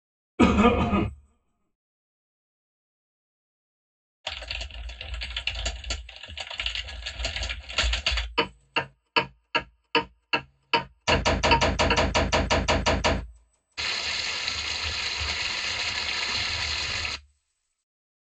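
At 0.38 seconds, someone coughs. Then, at 4.24 seconds, a computer keyboard can be heard. After that, at 8.37 seconds, a clock is heard. Over it, at 11.04 seconds, there is gunfire. Finally, at 13.77 seconds, the sound of a stream comes in.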